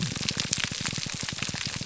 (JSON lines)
{"label": "biophony, pulse", "recorder": "SoundTrap 300"}